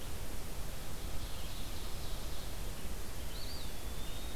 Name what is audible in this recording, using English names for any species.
Red-eyed Vireo, Ovenbird, Eastern Wood-Pewee